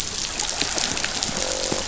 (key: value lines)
label: biophony, croak
recorder: SoundTrap 500